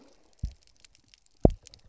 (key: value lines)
label: biophony, double pulse
recorder: SoundTrap 300